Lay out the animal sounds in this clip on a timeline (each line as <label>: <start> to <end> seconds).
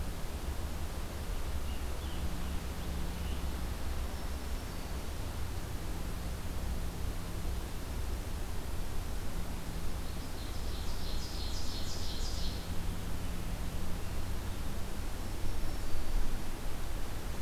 American Robin (Turdus migratorius): 1.2 to 3.5 seconds
Black-capped Chickadee (Poecile atricapillus): 4.0 to 5.1 seconds
Ovenbird (Seiurus aurocapilla): 9.9 to 12.9 seconds
Black-capped Chickadee (Poecile atricapillus): 15.2 to 16.8 seconds